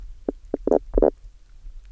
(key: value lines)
label: biophony, knock croak
recorder: SoundTrap 300